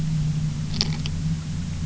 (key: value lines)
label: anthrophony, boat engine
recorder: SoundTrap 300